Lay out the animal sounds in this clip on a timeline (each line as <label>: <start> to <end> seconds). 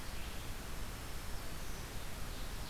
Red-eyed Vireo (Vireo olivaceus): 0.0 to 2.7 seconds
Black-throated Green Warbler (Setophaga virens): 0.7 to 1.9 seconds
Ovenbird (Seiurus aurocapilla): 2.2 to 2.7 seconds